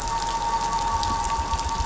{"label": "anthrophony, boat engine", "recorder": "SoundTrap 500"}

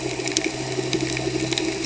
{"label": "anthrophony, boat engine", "recorder": "HydroMoth"}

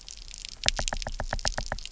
{"label": "biophony, knock", "recorder": "SoundTrap 300"}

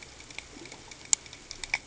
{"label": "ambient", "recorder": "HydroMoth"}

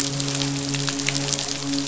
{"label": "biophony, midshipman", "recorder": "SoundTrap 500"}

